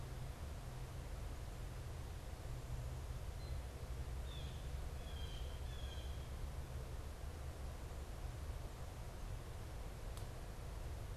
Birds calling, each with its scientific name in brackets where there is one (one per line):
Blue Jay (Cyanocitta cristata)